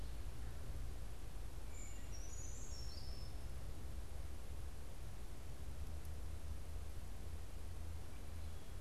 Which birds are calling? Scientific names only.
Certhia americana